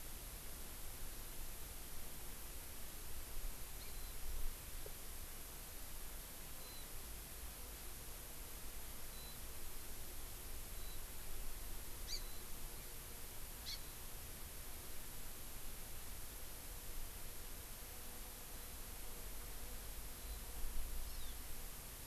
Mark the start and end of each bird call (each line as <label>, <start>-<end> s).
Warbling White-eye (Zosterops japonicus), 3.9-4.2 s
Warbling White-eye (Zosterops japonicus), 6.6-6.9 s
Warbling White-eye (Zosterops japonicus), 9.1-9.4 s
Warbling White-eye (Zosterops japonicus), 10.8-11.0 s
Hawaii Amakihi (Chlorodrepanis virens), 12.1-12.2 s
Warbling White-eye (Zosterops japonicus), 12.2-12.5 s
Hawaii Amakihi (Chlorodrepanis virens), 13.7-13.8 s
Warbling White-eye (Zosterops japonicus), 13.8-14.0 s
Warbling White-eye (Zosterops japonicus), 18.5-18.8 s
Warbling White-eye (Zosterops japonicus), 20.2-20.5 s
Hawaii Amakihi (Chlorodrepanis virens), 21.1-21.4 s